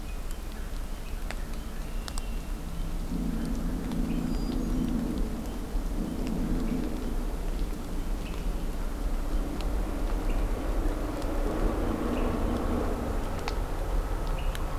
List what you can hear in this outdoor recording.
Hermit Thrush, Red-winged Blackbird